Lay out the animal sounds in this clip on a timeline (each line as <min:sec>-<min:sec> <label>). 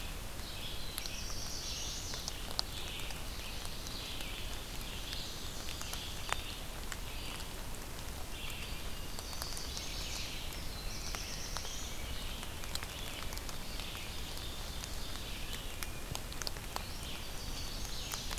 0:00.0-0:18.4 Red-eyed Vireo (Vireo olivaceus)
0:00.7-0:02.2 Black-throated Blue Warbler (Setophaga caerulescens)
0:01.3-0:02.4 Chestnut-sided Warbler (Setophaga pensylvanica)
0:04.8-0:06.3 Black-and-white Warbler (Mniotilta varia)
0:09.0-0:10.3 Chestnut-sided Warbler (Setophaga pensylvanica)
0:10.4-0:11.9 Black-throated Blue Warbler (Setophaga caerulescens)
0:13.4-0:15.6 Ovenbird (Seiurus aurocapilla)
0:17.3-0:18.4 Chestnut-sided Warbler (Setophaga pensylvanica)
0:17.9-0:18.4 Black-and-white Warbler (Mniotilta varia)